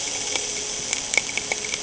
{"label": "anthrophony, boat engine", "recorder": "HydroMoth"}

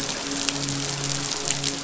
{"label": "biophony, midshipman", "recorder": "SoundTrap 500"}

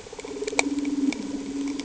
{"label": "anthrophony, boat engine", "recorder": "HydroMoth"}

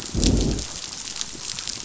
{"label": "biophony, growl", "recorder": "SoundTrap 500"}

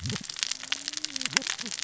{"label": "biophony, cascading saw", "recorder": "SoundTrap 600 or HydroMoth"}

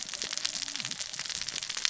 {"label": "biophony, cascading saw", "recorder": "SoundTrap 600 or HydroMoth"}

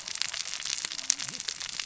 {"label": "biophony, cascading saw", "recorder": "SoundTrap 600 or HydroMoth"}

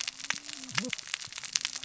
{"label": "biophony, cascading saw", "recorder": "SoundTrap 600 or HydroMoth"}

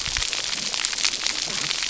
{"label": "biophony, cascading saw", "recorder": "SoundTrap 300"}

